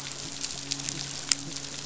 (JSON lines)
{"label": "biophony", "recorder": "SoundTrap 500"}
{"label": "biophony, midshipman", "recorder": "SoundTrap 500"}